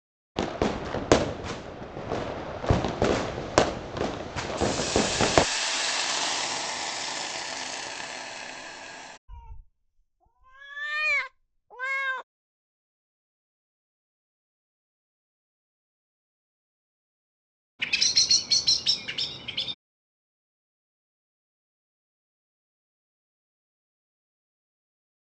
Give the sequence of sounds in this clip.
fireworks, hiss, meow, bird vocalization